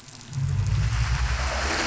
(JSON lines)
{"label": "anthrophony, boat engine", "recorder": "SoundTrap 500"}